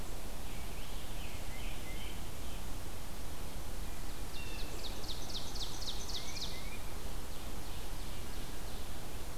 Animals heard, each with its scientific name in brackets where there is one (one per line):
Tufted Titmouse (Baeolophus bicolor)
Scarlet Tanager (Piranga olivacea)
Blue Jay (Cyanocitta cristata)
Ovenbird (Seiurus aurocapilla)